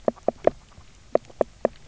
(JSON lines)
{"label": "biophony, knock croak", "recorder": "SoundTrap 300"}